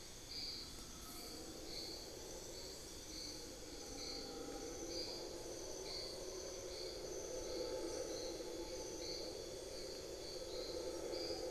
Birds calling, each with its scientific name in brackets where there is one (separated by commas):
Amazonian Pygmy-Owl (Glaucidium hardyi)